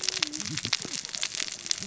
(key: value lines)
label: biophony, cascading saw
recorder: SoundTrap 600 or HydroMoth